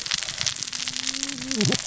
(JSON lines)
{"label": "biophony, cascading saw", "recorder": "SoundTrap 600 or HydroMoth"}